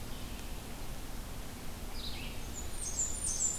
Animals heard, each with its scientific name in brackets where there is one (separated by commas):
Blackburnian Warbler (Setophaga fusca), Ovenbird (Seiurus aurocapilla), Red-eyed Vireo (Vireo olivaceus)